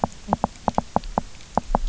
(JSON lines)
{"label": "biophony, knock", "recorder": "SoundTrap 300"}